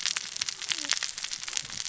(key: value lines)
label: biophony, cascading saw
recorder: SoundTrap 600 or HydroMoth